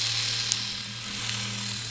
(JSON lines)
{"label": "anthrophony, boat engine", "recorder": "SoundTrap 500"}